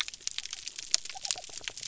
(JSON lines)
{"label": "biophony", "recorder": "SoundTrap 300"}